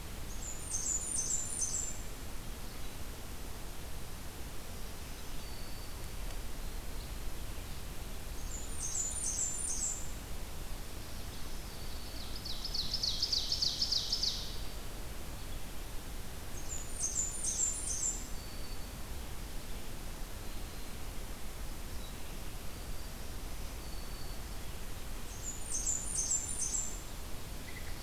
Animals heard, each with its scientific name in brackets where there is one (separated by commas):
Black-throated Green Warbler (Setophaga virens), Ovenbird (Seiurus aurocapilla), Blackburnian Warbler (Setophaga fusca), American Robin (Turdus migratorius)